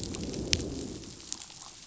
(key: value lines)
label: biophony, growl
recorder: SoundTrap 500